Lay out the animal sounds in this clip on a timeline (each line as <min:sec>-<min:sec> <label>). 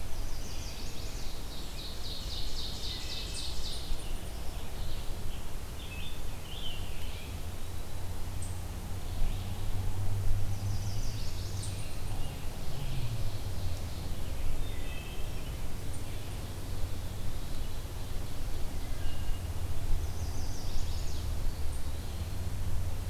0:00.0-0:01.5 Chestnut-sided Warbler (Setophaga pensylvanica)
0:01.4-0:04.1 Ovenbird (Seiurus aurocapilla)
0:02.7-0:03.4 Wood Thrush (Hylocichla mustelina)
0:05.7-0:07.5 Scarlet Tanager (Piranga olivacea)
0:10.3-0:11.8 Chestnut-sided Warbler (Setophaga pensylvanica)
0:12.7-0:14.3 Ovenbird (Seiurus aurocapilla)
0:14.5-0:15.5 Wood Thrush (Hylocichla mustelina)
0:17.2-0:19.1 Ovenbird (Seiurus aurocapilla)
0:19.0-0:19.7 Wood Thrush (Hylocichla mustelina)
0:19.7-0:21.4 Chestnut-sided Warbler (Setophaga pensylvanica)